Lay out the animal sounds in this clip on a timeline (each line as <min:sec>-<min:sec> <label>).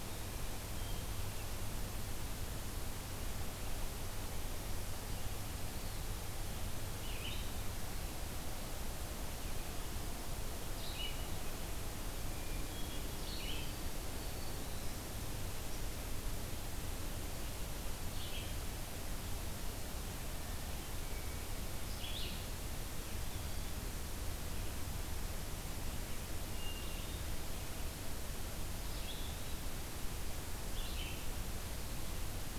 0:06.9-0:14.1 Red-eyed Vireo (Vireo olivaceus)
0:12.2-0:13.2 Hermit Thrush (Catharus guttatus)
0:13.4-0:15.1 Black-throated Green Warbler (Setophaga virens)
0:17.9-0:22.9 Red-eyed Vireo (Vireo olivaceus)
0:20.2-0:21.6 Hermit Thrush (Catharus guttatus)
0:26.5-0:27.4 Hermit Thrush (Catharus guttatus)
0:28.8-0:31.5 Red-eyed Vireo (Vireo olivaceus)